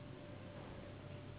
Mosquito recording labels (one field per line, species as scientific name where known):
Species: Anopheles gambiae s.s.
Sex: female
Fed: unfed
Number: one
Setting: insect culture